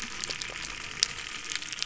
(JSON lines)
{"label": "anthrophony, boat engine", "recorder": "SoundTrap 300"}